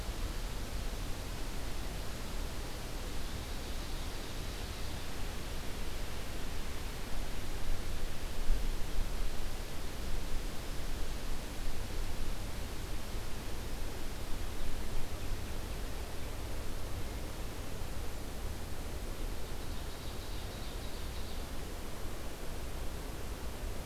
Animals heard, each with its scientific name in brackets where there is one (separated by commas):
Ovenbird (Seiurus aurocapilla)